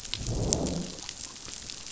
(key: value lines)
label: biophony, growl
recorder: SoundTrap 500